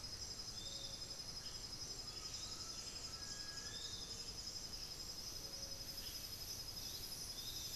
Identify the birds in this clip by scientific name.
Campylorhynchus turdinus, Legatus leucophaius, Crypturellus undulatus